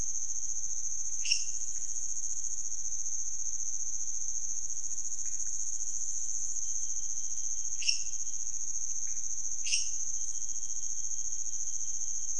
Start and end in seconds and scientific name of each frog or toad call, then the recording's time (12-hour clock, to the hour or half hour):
1.2	1.7	Dendropsophus minutus
5.2	5.7	Leptodactylus podicipinus
7.8	8.3	Dendropsophus minutus
8.8	9.3	Leptodactylus podicipinus
9.6	10.0	Dendropsophus minutus
1am